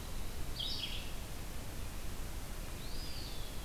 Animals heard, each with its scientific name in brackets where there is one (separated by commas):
Eastern Wood-Pewee (Contopus virens), Red-eyed Vireo (Vireo olivaceus)